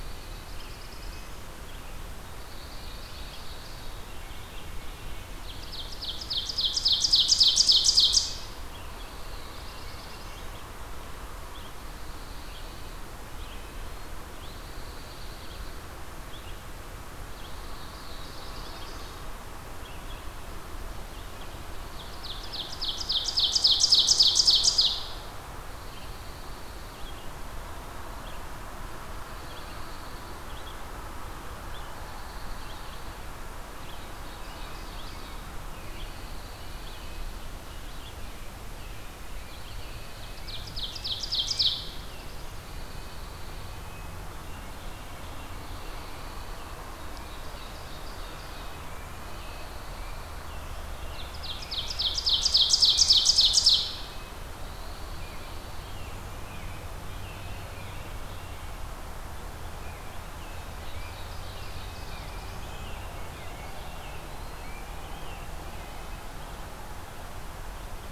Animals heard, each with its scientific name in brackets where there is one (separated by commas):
Ovenbird (Seiurus aurocapilla), Red-eyed Vireo (Vireo olivaceus), Red-breasted Nuthatch (Sitta canadensis), Black-throated Blue Warbler (Setophaga caerulescens), Pine Warbler (Setophaga pinus), American Robin (Turdus migratorius), Eastern Wood-Pewee (Contopus virens)